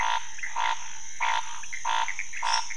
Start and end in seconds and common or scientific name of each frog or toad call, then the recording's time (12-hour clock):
0.0	2.7	Pithecopus azureus
0.0	2.7	Scinax fuscovarius
2.4	2.7	lesser tree frog
2:30am